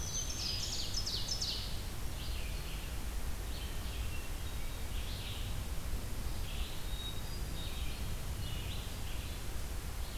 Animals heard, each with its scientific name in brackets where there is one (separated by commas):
Black-throated Green Warbler (Setophaga virens), Red-eyed Vireo (Vireo olivaceus), Hermit Thrush (Catharus guttatus), Ovenbird (Seiurus aurocapilla)